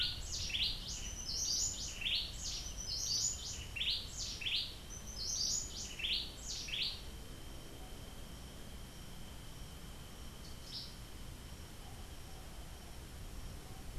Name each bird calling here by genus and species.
Chiroxiphia linearis, Cantorchilus modestus